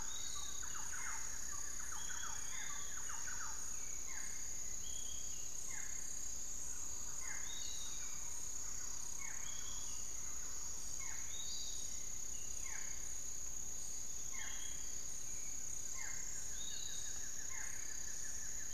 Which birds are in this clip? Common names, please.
Long-winged Antwren, Thrush-like Wren, Barred Forest-Falcon, Piratic Flycatcher, unidentified bird, Buff-throated Woodcreeper